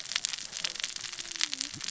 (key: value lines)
label: biophony, cascading saw
recorder: SoundTrap 600 or HydroMoth